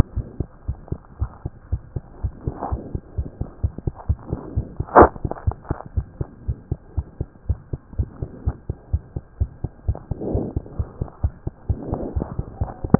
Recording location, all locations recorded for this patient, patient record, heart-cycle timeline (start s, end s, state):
pulmonary valve (PV)
aortic valve (AV)+pulmonary valve (PV)+tricuspid valve (TV)+mitral valve (MV)
#Age: Child
#Sex: Male
#Height: 99.0 cm
#Weight: 15.1 kg
#Pregnancy status: False
#Murmur: Absent
#Murmur locations: nan
#Most audible location: nan
#Systolic murmur timing: nan
#Systolic murmur shape: nan
#Systolic murmur grading: nan
#Systolic murmur pitch: nan
#Systolic murmur quality: nan
#Diastolic murmur timing: nan
#Diastolic murmur shape: nan
#Diastolic murmur grading: nan
#Diastolic murmur pitch: nan
#Diastolic murmur quality: nan
#Outcome: Normal
#Campaign: 2015 screening campaign
0.00	0.14	unannotated
0.14	0.26	S1
0.26	0.38	systole
0.38	0.50	S2
0.50	0.66	diastole
0.66	0.78	S1
0.78	0.88	systole
0.88	1.00	S2
1.00	1.18	diastole
1.18	1.32	S1
1.32	1.42	systole
1.42	1.52	S2
1.52	1.70	diastole
1.70	1.82	S1
1.82	1.92	systole
1.92	2.04	S2
2.04	2.22	diastole
2.22	2.34	S1
2.34	2.44	systole
2.44	2.54	S2
2.54	2.70	diastole
2.70	2.84	S1
2.84	2.92	systole
2.92	3.02	S2
3.02	3.16	diastole
3.16	3.30	S1
3.30	3.38	systole
3.38	3.48	S2
3.48	3.62	diastole
3.62	3.72	S1
3.72	3.84	systole
3.84	3.94	S2
3.94	4.08	diastole
4.08	4.18	S1
4.18	4.28	systole
4.28	4.40	S2
4.40	4.54	diastole
4.54	4.66	S1
4.66	4.77	systole
4.77	4.85	S2
4.85	5.43	unannotated
5.43	5.56	S1
5.56	5.66	systole
5.66	5.78	S2
5.78	5.94	diastole
5.94	6.06	S1
6.06	6.16	systole
6.16	6.28	S2
6.28	6.46	diastole
6.46	6.60	S1
6.60	6.69	systole
6.69	6.80	S2
6.80	6.94	diastole
6.94	7.06	S1
7.06	7.16	systole
7.16	7.28	S2
7.28	7.46	diastole
7.46	7.58	S1
7.58	7.71	systole
7.71	7.80	S2
7.80	7.96	diastole
7.96	8.08	S1
8.08	8.20	systole
8.20	8.30	S2
8.30	8.44	diastole
8.44	8.56	S1
8.56	8.68	systole
8.68	8.78	S2
8.78	8.92	diastole
8.92	9.02	S1
9.02	9.12	systole
9.12	9.22	S2
9.22	9.38	diastole
9.38	9.50	S1
9.50	9.60	systole
9.60	9.70	S2
9.70	9.86	diastole
9.86	9.98	S1
9.98	10.10	systole
10.10	10.18	S2
10.18	10.32	diastole
10.32	10.48	S1
10.48	10.54	systole
10.54	10.64	S2
10.64	10.78	diastole
10.78	10.88	S1
10.88	11.00	systole
11.00	11.10	S2
11.10	11.22	diastole
11.22	11.34	S1
11.34	11.46	systole
11.46	11.54	S2
11.54	11.68	diastole
11.68	11.78	S1
11.78	11.89	systole
11.89	12.00	S2
12.00	12.14	diastole
12.14	12.28	S1
12.28	12.36	systole
12.36	12.48	S2
12.48	12.58	diastole
12.58	12.70	S1
12.70	12.99	unannotated